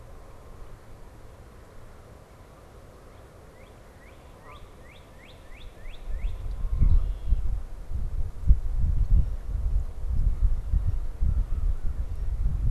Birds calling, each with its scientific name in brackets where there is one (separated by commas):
Northern Cardinal (Cardinalis cardinalis), Canada Goose (Branta canadensis), American Crow (Corvus brachyrhynchos)